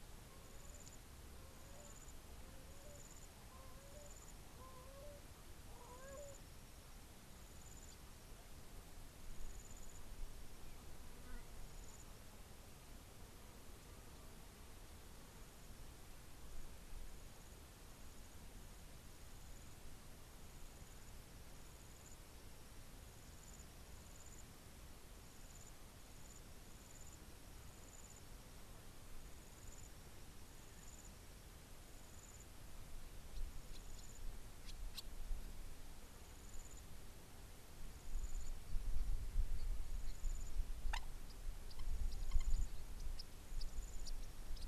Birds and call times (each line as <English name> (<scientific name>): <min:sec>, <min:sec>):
Gray Crowned-Crane (Balearica regulorum): 0:05.9